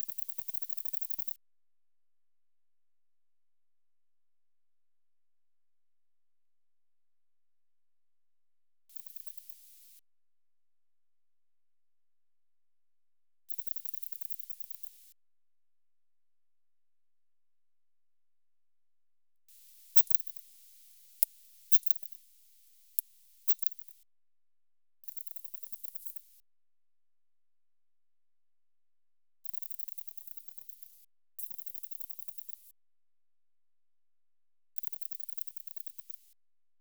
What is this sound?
Odontura glabricauda, an orthopteran